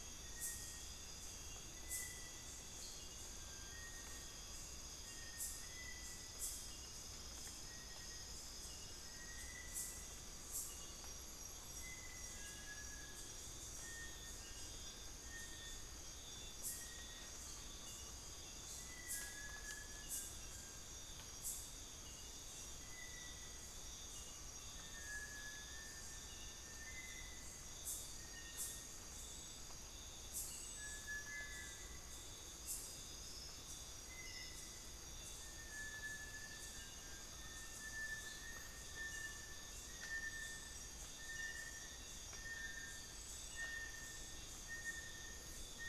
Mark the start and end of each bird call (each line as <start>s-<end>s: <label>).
0.0s-5.2s: Amazonian Pygmy-Owl (Glaucidium hardyi)
0.0s-45.9s: Bartlett's Tinamou (Crypturellus bartletti)
10.0s-12.2s: Amazonian Pygmy-Owl (Glaucidium hardyi)
17.4s-19.1s: Amazonian Pygmy-Owl (Glaucidium hardyi)
24.1s-39.8s: Amazonian Pygmy-Owl (Glaucidium hardyi)